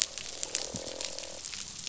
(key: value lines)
label: biophony, croak
recorder: SoundTrap 500